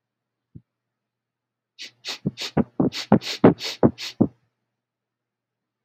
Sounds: Sniff